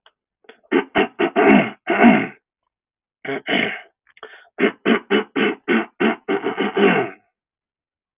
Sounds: Throat clearing